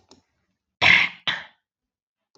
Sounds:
Throat clearing